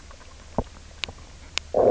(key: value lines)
label: biophony, low growl
recorder: SoundTrap 300